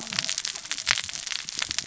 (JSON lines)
{"label": "biophony, cascading saw", "recorder": "SoundTrap 600 or HydroMoth"}